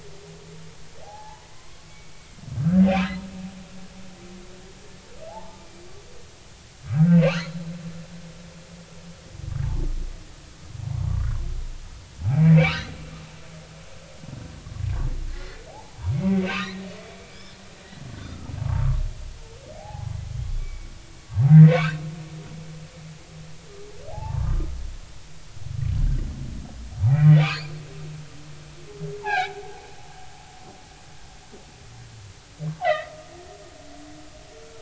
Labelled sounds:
1.0	2.1	humpback whale, 0.80 to 2.3 kHz
2.5	2.9	humpback whale, 1.2 to 1.7 kHz
5.3	5.6	humpback whale, 0.80 to 1.1 kHz
6.9	7.5	humpback whale, 1.3 to 4.4 kHz
11.1	11.4	humpback whale, 0.96 to 1.5 kHz
12.3	12.9	humpback whale, 1.1 to 4.4 kHz
15.3	16.9	humpback whale, 1.8 to 4.2 kHz
17.2	18.9	humpback whale, 0.80 to 2.5 kHz
19.7	20.1	humpback whale, 0.80 to 0.90 kHz
20.6	20.9	humpback whale, 2.2 to 2.4 kHz
21.5	22.0	humpback whale, 1.0 to 2.1 kHz
24.1	24.7	humpback whale, 0.80 to 1.3 kHz
26.0	26.2	humpback whale, 1.5 to 1.7 kHz
27.1	27.4	humpback whale, 1.8 to 2.0 kHz
29.2	29.6	humpback whale, 0.80 to 4.2 kHz
32.8	33.1	humpback whale, 1.2 to 2.1 kHz

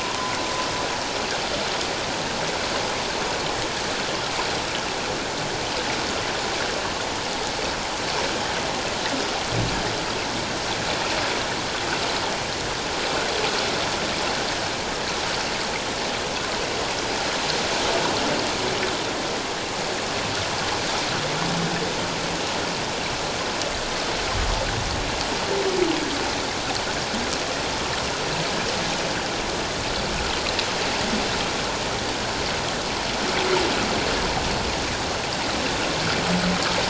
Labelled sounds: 0.0	0.3	humpback whale, 0.94 to 1.1 kHz

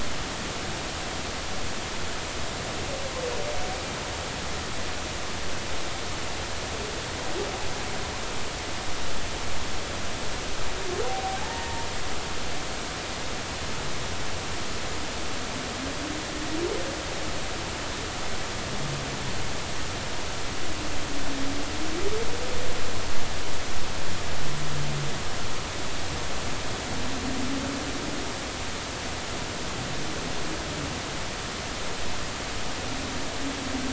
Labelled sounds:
11.0	11.9	humpback whale, 0.80 to 1.9 kHz

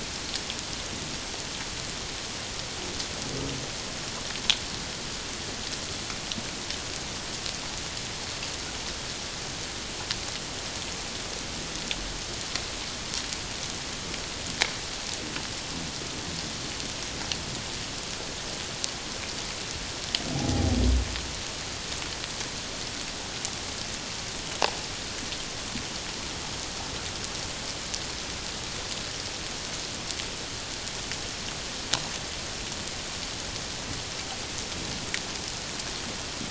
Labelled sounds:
20.5	20.8	humpback whale, 0.78 to 0.84 kHz

